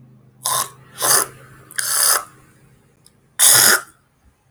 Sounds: Throat clearing